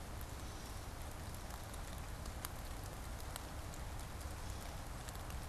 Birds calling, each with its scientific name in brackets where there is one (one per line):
Gray Catbird (Dumetella carolinensis)